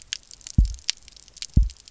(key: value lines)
label: biophony, double pulse
recorder: SoundTrap 300